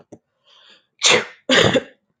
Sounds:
Sneeze